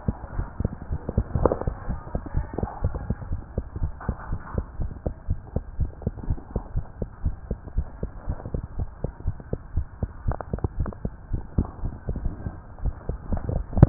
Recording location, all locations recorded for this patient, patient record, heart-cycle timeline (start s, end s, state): tricuspid valve (TV)
aortic valve (AV)+pulmonary valve (PV)+tricuspid valve (TV)+mitral valve (MV)
#Age: Child
#Sex: Female
#Height: 127.0 cm
#Weight: 24.2 kg
#Pregnancy status: False
#Murmur: Absent
#Murmur locations: nan
#Most audible location: nan
#Systolic murmur timing: nan
#Systolic murmur shape: nan
#Systolic murmur grading: nan
#Systolic murmur pitch: nan
#Systolic murmur quality: nan
#Diastolic murmur timing: nan
#Diastolic murmur shape: nan
#Diastolic murmur grading: nan
#Diastolic murmur pitch: nan
#Diastolic murmur quality: nan
#Outcome: Normal
#Campaign: 2015 screening campaign
0.00	3.32	unannotated
3.32	3.42	S1
3.42	3.56	systole
3.56	3.66	S2
3.66	3.80	diastole
3.80	3.94	S1
3.94	4.08	systole
4.08	4.16	S2
4.16	4.30	diastole
4.30	4.40	S1
4.40	4.54	systole
4.54	4.66	S2
4.66	4.78	diastole
4.78	4.92	S1
4.92	5.06	systole
5.06	5.16	S2
5.16	5.30	diastole
5.30	5.40	S1
5.40	5.52	systole
5.52	5.64	S2
5.64	5.78	diastole
5.78	5.92	S1
5.92	6.04	systole
6.04	6.14	S2
6.14	6.28	diastole
6.28	6.38	S1
6.38	6.54	systole
6.54	6.64	S2
6.64	6.76	diastole
6.76	6.86	S1
6.86	7.00	systole
7.00	7.08	S2
7.08	7.24	diastole
7.24	7.36	S1
7.36	7.48	systole
7.48	7.58	S2
7.58	7.74	diastole
7.74	7.88	S1
7.88	8.02	systole
8.02	8.12	S2
8.12	8.28	diastole
8.28	8.38	S1
8.38	8.52	systole
8.52	8.64	S2
8.64	8.76	diastole
8.76	8.90	S1
8.90	9.04	systole
9.04	9.14	S2
9.14	9.26	diastole
9.26	9.36	S1
9.36	9.48	systole
9.48	9.58	S2
9.58	9.74	diastole
9.74	9.86	S1
9.86	9.98	systole
9.98	10.12	S2
10.12	13.89	unannotated